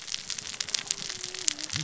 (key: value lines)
label: biophony, cascading saw
recorder: SoundTrap 600 or HydroMoth